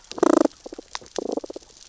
{"label": "biophony, damselfish", "recorder": "SoundTrap 600 or HydroMoth"}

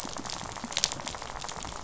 {"label": "biophony, rattle", "recorder": "SoundTrap 500"}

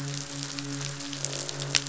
{"label": "biophony, midshipman", "recorder": "SoundTrap 500"}
{"label": "biophony, croak", "recorder": "SoundTrap 500"}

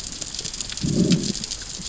{"label": "biophony, growl", "recorder": "SoundTrap 600 or HydroMoth"}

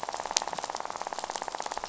{"label": "biophony, rattle", "recorder": "SoundTrap 500"}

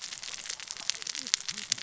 {"label": "biophony, cascading saw", "recorder": "SoundTrap 600 or HydroMoth"}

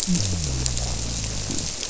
{"label": "biophony", "recorder": "SoundTrap 300"}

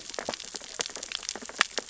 {"label": "biophony, sea urchins (Echinidae)", "recorder": "SoundTrap 600 or HydroMoth"}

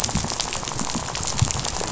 {"label": "biophony, rattle", "recorder": "SoundTrap 500"}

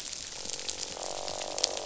{"label": "biophony, croak", "recorder": "SoundTrap 500"}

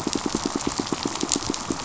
{"label": "biophony, pulse", "recorder": "SoundTrap 500"}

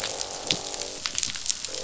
{"label": "biophony, croak", "recorder": "SoundTrap 500"}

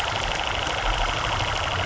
{"label": "anthrophony, boat engine", "recorder": "SoundTrap 300"}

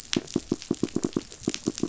{"label": "biophony, knock", "recorder": "SoundTrap 500"}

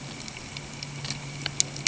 {"label": "anthrophony, boat engine", "recorder": "HydroMoth"}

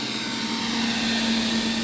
{"label": "anthrophony, boat engine", "recorder": "SoundTrap 500"}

